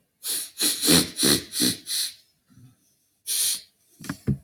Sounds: Sniff